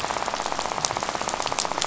{"label": "biophony, rattle", "recorder": "SoundTrap 500"}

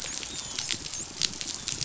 {"label": "biophony, dolphin", "recorder": "SoundTrap 500"}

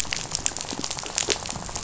{"label": "biophony, rattle", "recorder": "SoundTrap 500"}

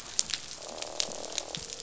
{"label": "biophony, croak", "recorder": "SoundTrap 500"}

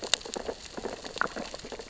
{"label": "biophony, sea urchins (Echinidae)", "recorder": "SoundTrap 600 or HydroMoth"}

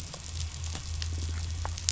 {"label": "anthrophony, boat engine", "recorder": "SoundTrap 500"}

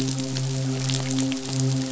{"label": "biophony, midshipman", "recorder": "SoundTrap 500"}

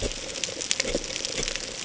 {"label": "ambient", "recorder": "HydroMoth"}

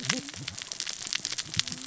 {"label": "biophony, cascading saw", "recorder": "SoundTrap 600 or HydroMoth"}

